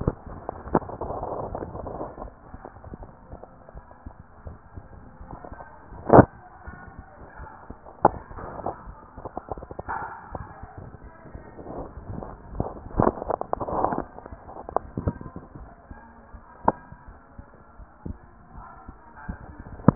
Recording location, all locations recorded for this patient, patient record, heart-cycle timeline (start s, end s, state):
pulmonary valve (PV)
pulmonary valve (PV)
#Age: nan
#Sex: Female
#Height: nan
#Weight: nan
#Pregnancy status: True
#Murmur: Unknown
#Murmur locations: nan
#Most audible location: nan
#Systolic murmur timing: nan
#Systolic murmur shape: nan
#Systolic murmur grading: nan
#Systolic murmur pitch: nan
#Systolic murmur quality: nan
#Diastolic murmur timing: nan
#Diastolic murmur shape: nan
#Diastolic murmur grading: nan
#Diastolic murmur pitch: nan
#Diastolic murmur quality: nan
#Outcome: Normal
#Campaign: 2015 screening campaign
0.00	15.54	unannotated
15.54	15.68	S1
15.68	15.87	systole
15.87	16.00	S2
16.00	16.29	diastole
16.29	16.42	S1
16.42	16.61	systole
16.61	16.76	S2
16.76	17.04	diastole
17.04	17.16	S1
17.16	17.34	systole
17.34	17.48	S2
17.48	17.75	diastole
17.75	17.88	S1
17.88	18.06	systole
18.06	18.20	S2
18.20	18.50	diastole
18.50	18.64	S1
18.64	18.84	systole
18.84	18.98	S2
18.98	19.24	diastole
19.24	19.37	S1
19.37	19.95	unannotated